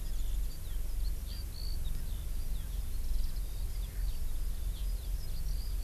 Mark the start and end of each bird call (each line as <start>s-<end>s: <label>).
0.0s-5.8s: Eurasian Skylark (Alauda arvensis)